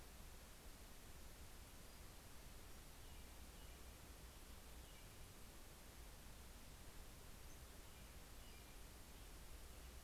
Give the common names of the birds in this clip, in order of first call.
American Robin